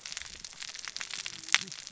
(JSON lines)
{"label": "biophony, cascading saw", "recorder": "SoundTrap 600 or HydroMoth"}